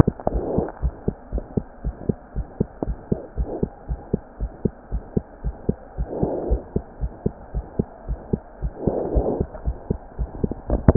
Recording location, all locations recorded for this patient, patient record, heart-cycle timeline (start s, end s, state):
mitral valve (MV)
aortic valve (AV)+pulmonary valve (PV)+tricuspid valve (TV)+mitral valve (MV)
#Age: Child
#Sex: Female
#Height: 74.0 cm
#Weight: 7.8 kg
#Pregnancy status: False
#Murmur: Present
#Murmur locations: tricuspid valve (TV)
#Most audible location: tricuspid valve (TV)
#Systolic murmur timing: Early-systolic
#Systolic murmur shape: Decrescendo
#Systolic murmur grading: I/VI
#Systolic murmur pitch: Low
#Systolic murmur quality: Blowing
#Diastolic murmur timing: nan
#Diastolic murmur shape: nan
#Diastolic murmur grading: nan
#Diastolic murmur pitch: nan
#Diastolic murmur quality: nan
#Outcome: Abnormal
#Campaign: 2015 screening campaign
0.00	0.79	unannotated
0.79	0.94	S1
0.94	1.04	systole
1.04	1.16	S2
1.16	1.32	diastole
1.32	1.44	S1
1.44	1.56	systole
1.56	1.66	S2
1.66	1.84	diastole
1.84	1.96	S1
1.96	2.06	systole
2.06	2.16	S2
2.16	2.36	diastole
2.36	2.46	S1
2.46	2.56	systole
2.56	2.70	S2
2.70	2.86	diastole
2.86	2.98	S1
2.98	3.08	systole
3.08	3.20	S2
3.20	3.38	diastole
3.38	3.48	S1
3.48	3.60	systole
3.60	3.72	S2
3.72	3.90	diastole
3.90	4.00	S1
4.00	4.12	systole
4.12	4.22	S2
4.22	4.40	diastole
4.40	4.52	S1
4.52	4.64	systole
4.64	4.74	S2
4.74	4.92	diastole
4.92	5.04	S1
5.04	5.12	systole
5.12	5.26	S2
5.26	5.44	diastole
5.44	5.56	S1
5.56	5.68	systole
5.68	5.78	S2
5.78	5.98	diastole
5.98	6.10	S1
6.10	6.20	systole
6.20	6.32	S2
6.32	6.46	diastole
6.46	6.62	S1
6.62	6.72	systole
6.72	6.84	S2
6.84	7.00	diastole
7.00	7.12	S1
7.12	7.22	systole
7.22	7.34	S2
7.34	7.54	diastole
7.54	7.66	S1
7.66	7.78	systole
7.78	7.86	S2
7.86	8.08	diastole
8.08	8.20	S1
8.20	8.32	systole
8.32	8.42	S2
8.42	10.96	unannotated